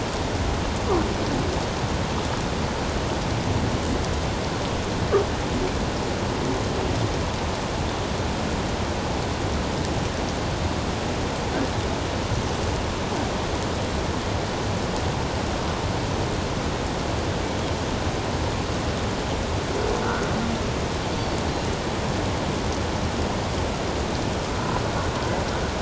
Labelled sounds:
20.0	20.3	humpback whale, 1.3 to 1.6 kHz

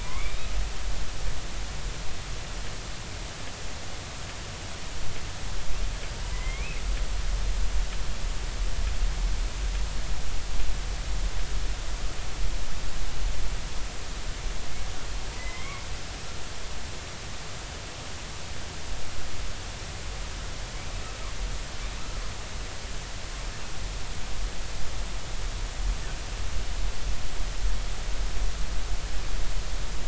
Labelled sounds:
0.0	0.5	killer whale, southern resident, J clan, 0.93 to 3.9 kHz
6.2	6.8	killer whale, southern resident, J clan, 0.93 to 2.7 kHz
15.4	15.8	killer whale, southern resident, J clan, 2.0 to 2.3 kHz

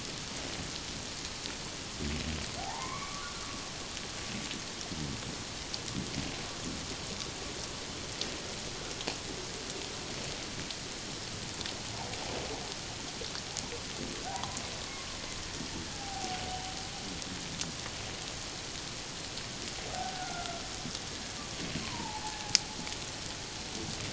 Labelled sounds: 2.6	3.3	humpback whale, 0.78 to 2.3 kHz
14.3	14.6	humpback whale, 0.78 to 1.2 kHz
15.9	16.7	humpback whale, 0.78 to 3.1 kHz
19.9	20.6	humpback whale, 0.78 to 1.5 kHz
21.8	22.6	humpback whale, 0.78 to 1.1 kHz

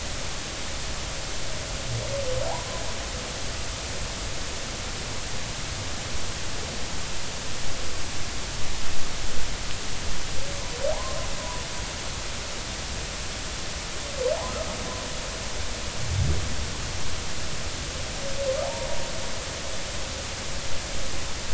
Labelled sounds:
10.9	11.6	humpback whale, 0.80 to 1.1 kHz
18.6	18.9	humpback whale, 0.80 to 0.99 kHz

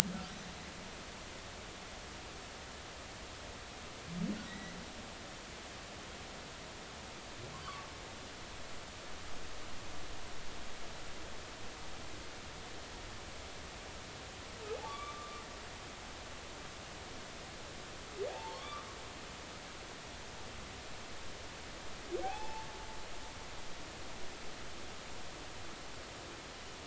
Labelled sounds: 4.5	4.7	humpback whale, 1.9 to 2.0 kHz
14.8	15.4	humpback whale, 1.1 to 1.2 kHz
18.3	18.9	humpback whale, 0.80 to 1.4 kHz
22.2	22.7	humpback whale, 0.80 to 2.7 kHz

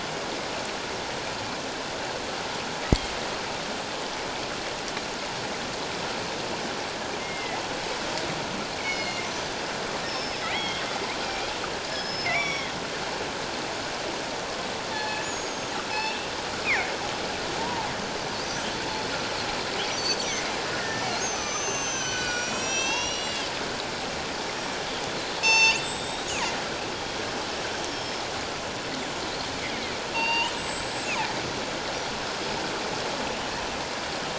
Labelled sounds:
2.8	3.1	killer whale, northern resident, 1.8 to 2.2 kHz
7.2	7.6	killer whale, northern resident, 1.9 to 2.2 kHz
8.8	11.5	killer whale, northern resident, 1.9 to 6.1 kHz
11.9	12.7	killer whale, northern resident, 1.9 to 5.8 kHz
14.9	16.3	killer whale, northern resident, 0.81 to 7.0 kHz
16.6	16.9	killer whale, northern resident, 1.7 to 2.7 kHz
17.6	17.9	killer whale, northern resident, 0.81 to 1.0 kHz
20.0	23.5	killer whale, northern resident, 1.1 to 7.9 kHz
24.4	24.8	killer whale, northern resident, 5.4 to 5.7 kHz
25.4	26.6	killer whale, northern resident, 0.81 to 8.0 kHz
26.9	28.2	killer whale, northern resident, 3.2 to 5.5 kHz
30.1	31.1	killer whale, northern resident, 0.84 to 8.0 kHz

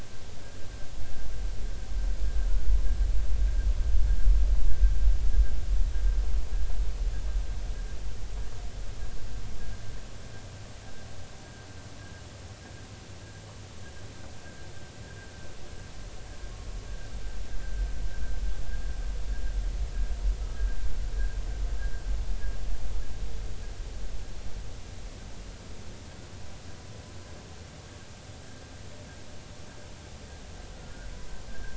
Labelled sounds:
30.7	31.7	humpback whale, 1.4 to 1.7 kHz

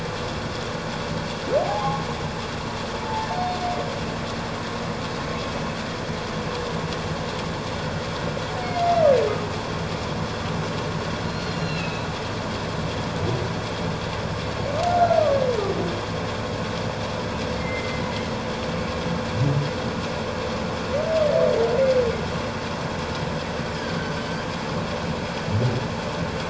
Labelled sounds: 1.6	2.0	humpback whale, 0.78 to 0.94 kHz
3.0	3.3	humpback whale, 0.81 to 0.97 kHz
8.6	8.9	humpback whale, 2.0 to 2.2 kHz
11.3	12.1	humpback whale, 2.5 to 4.5 kHz
14.9	15.2	humpback whale, 1.3 to 1.5 kHz
17.6	18.0	humpback whale, 2.0 to 2.2 kHz

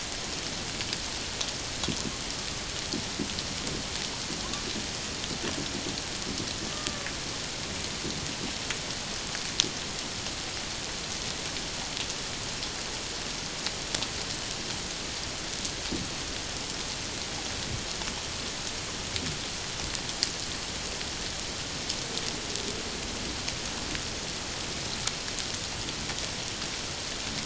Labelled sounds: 6.7	7.1	killer whale, Bigg's (transient), 1.1 to 1.2 kHz

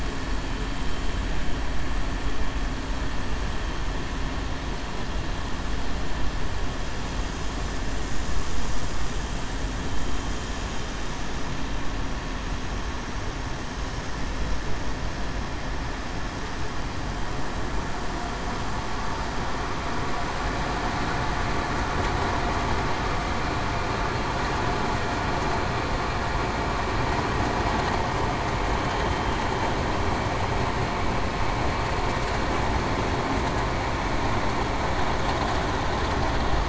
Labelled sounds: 29.0	29.3	vessel noise, 3.1 to 3.2 kHz

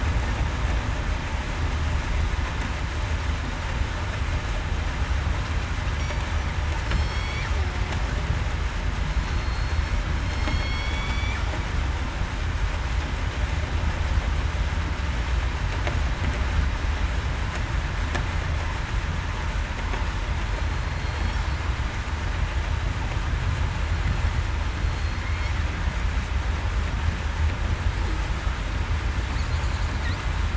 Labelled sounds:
6.9	7.4	killer whale, southern resident, 3.2 to 5.8 kHz
9.1	11.3	killer whale, southern resident, 4.2 to 8.0 kHz
20.5	21.3	killer whale, southern resident, 4.2 to 4.4 kHz
24.8	25.2	killer whale, southern resident, 4.2 to 4.3 kHz

